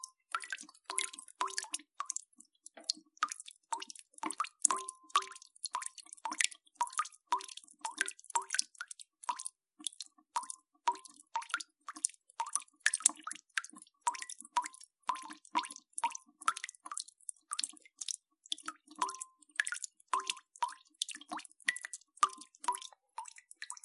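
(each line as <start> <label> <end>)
0.0 Irregular dripping sounds. 23.8
4.3 Water drops falling. 13.4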